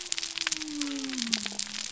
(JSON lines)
{"label": "biophony", "recorder": "SoundTrap 300"}